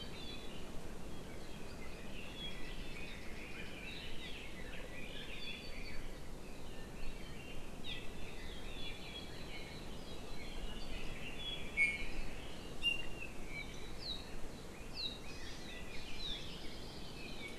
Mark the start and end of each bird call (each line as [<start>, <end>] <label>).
[4.20, 4.40] Apapane (Himatione sanguinea)
[7.80, 8.00] Apapane (Himatione sanguinea)
[11.70, 12.10] Iiwi (Drepanis coccinea)
[12.80, 13.30] Iiwi (Drepanis coccinea)
[14.70, 16.50] Red-billed Leiothrix (Leiothrix lutea)
[16.30, 17.30] Hawaii Creeper (Loxops mana)